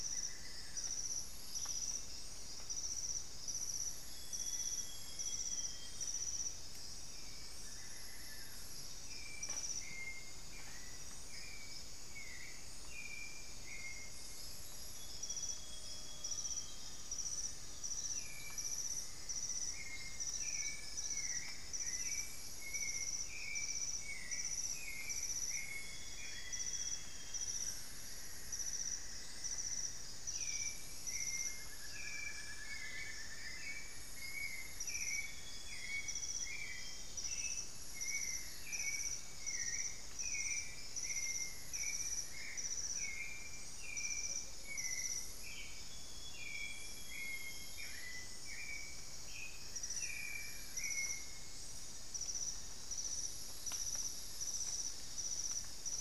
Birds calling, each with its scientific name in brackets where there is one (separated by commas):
unidentified bird, Elegant Woodcreeper (Xiphorhynchus elegans), Black-faced Antthrush (Formicarius analis), Grayish Mourner (Rhytipterna simplex), Amazonian Barred-Woodcreeper (Dendrocolaptes certhia), White-necked Thrush (Turdus albicollis), Fasciated Antshrike (Cymbilaimus lineatus), Amazonian Motmot (Momotus momota), Cinnamon-throated Woodcreeper (Dendrexetastes rufigula), Amazonian Grosbeak (Cyanoloxia rothschildii)